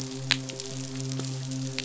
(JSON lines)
{"label": "biophony, midshipman", "recorder": "SoundTrap 500"}